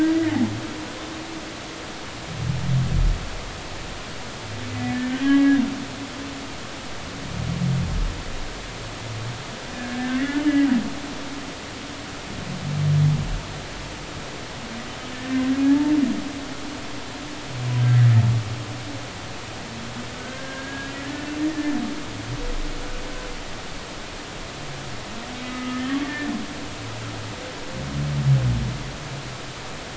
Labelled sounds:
4.9	5.6	humpback whale, 1.1 to 3.1 kHz
9.7	10.7	humpback whale, 1.6 to 3.0 kHz
15.3	15.9	humpback whale, 0.80 to 1.9 kHz
20.2	20.9	humpback whale, 1.5 to 1.8 kHz
25.4	26.0	humpback whale, 1.2 to 2.0 kHz

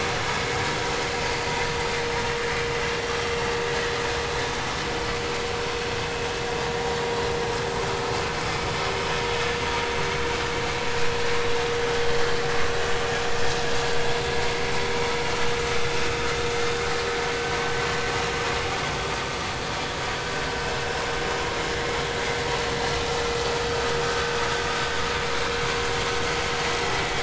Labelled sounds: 1.2	1.5	vessel noise, 4.5 to 4.7 kHz
24.0	24.4	vessel noise, 1.4 to 1.6 kHz

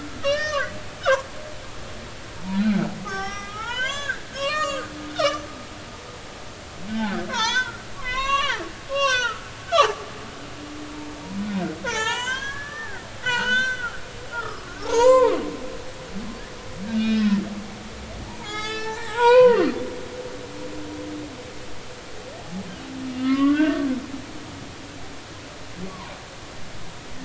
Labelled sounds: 0.2	1.2	humpback whale, 0.90 to 5.0 kHz
2.5	5.4	humpback whale, 0.83 to 8.0 kHz
6.9	10.0	humpback whale, 0.80 to 7.8 kHz
11.8	15.4	humpback whale, 0.80 to 7.9 kHz
16.8	17.4	humpback whale, 1.3 to 3.4 kHz
18.2	19.8	humpback whale, 0.80 to 7.8 kHz
23.2	23.9	humpback whale, 1.0 to 2.3 kHz
25.9	26.1	humpback whale, 0.93 to 1.2 kHz

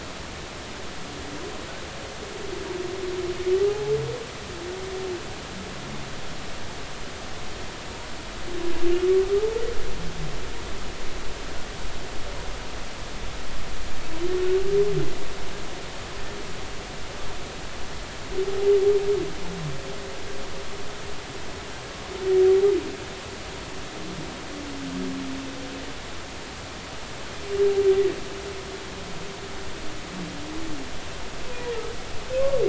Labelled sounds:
3.7	3.9	humpback whale, 0.80 to 0.90 kHz

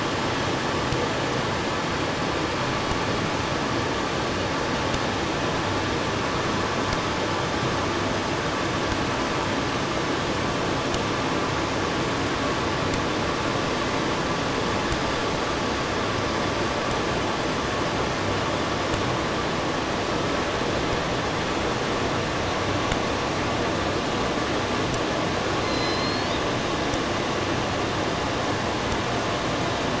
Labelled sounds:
25.4	26.8	killer whale, southern resident, J pod, call S01, 1.5 to 7.2 kHz

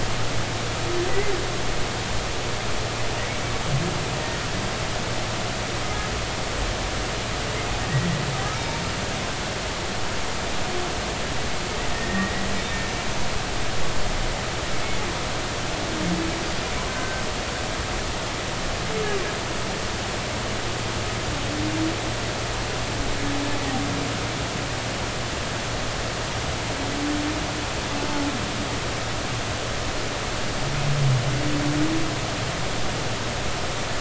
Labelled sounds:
8.5	8.8	humpback whale, 0.86 to 2.4 kHz
11.9	12.5	humpback whale, 1.8 to 2.0 kHz
16.9	17.2	humpback whale, 1.5 to 1.6 kHz

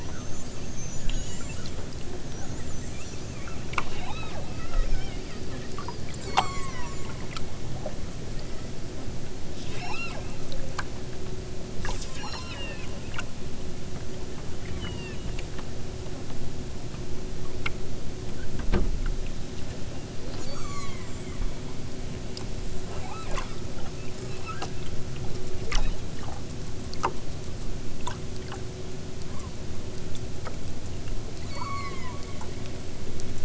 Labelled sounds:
3.9	4.4	killer whale, southern Alaska resident, 0.60 to 4.3 kHz
6.1	7.0	killer whale, southern Alaska resident, 0.69 to 8.0 kHz
8.3	8.9	killer whale, southern Alaska resident, 1.0 to 5.8 kHz
9.5	10.3	killer whale, southern Alaska resident, 0.60 to 7.3 kHz
12.2	13.0	killer whale, southern Alaska resident, 0.69 to 8.0 kHz
14.6	15.3	killer whale, southern Alaska resident, 1.5 to 5.9 kHz
20.3	21.1	killer whale, southern Alaska resident, 0.78 to 8.0 kHz
22.9	23.3	killer whale, southern Alaska resident, 0.74 to 4.2 kHz
24.2	24.6	killer whale, southern Alaska resident, 1.0 to 5.7 kHz
25.8	26.1	killer whale, southern Alaska resident, 2.2 to 4.6 kHz
29.2	29.6	killer whale, southern Alaska resident, 0.74 to 2.6 kHz
31.4	32.2	killer whale, southern Alaska resident, 0.74 to 8.0 kHz

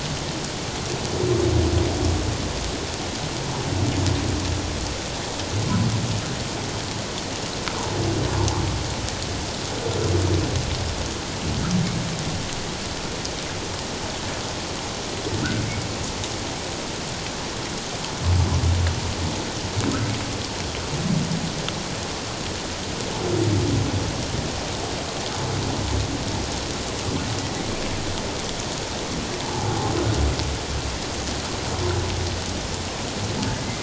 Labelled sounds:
29.4	29.7	humpback whale, 0.78 to 1.0 kHz
33.6	33.8	humpback whale, 1.9 to 2.2 kHz

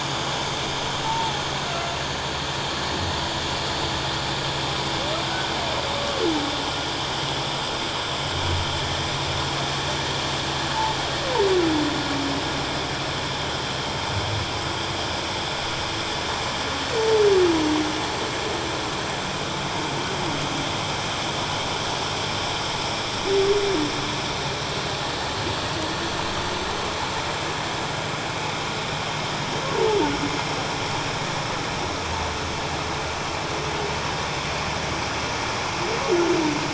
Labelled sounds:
1.0	1.4	humpback whale, 0.81 to 1.0 kHz
5.2	5.5	humpback whale, 1.4 to 1.6 kHz

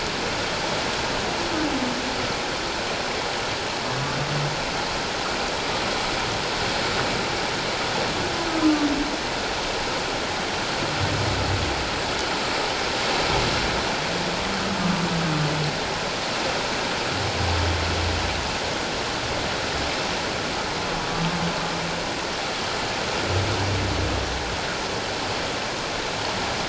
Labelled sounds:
8.6	8.9	humpback whale, 1.1 to 1.2 kHz
21.0	21.3	humpback whale, 1.1 to 1.2 kHz

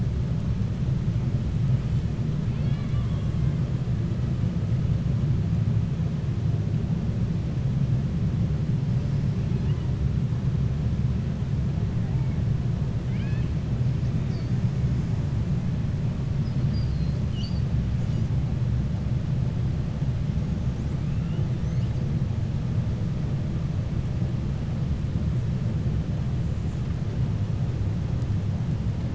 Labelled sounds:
2.4	3.5	killer whale, 1.1 to 5.0 kHz
13.0	13.5	killer whale, 1.6 to 5.1 kHz

